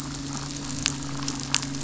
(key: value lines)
label: biophony, midshipman
recorder: SoundTrap 500

label: biophony, damselfish
recorder: SoundTrap 500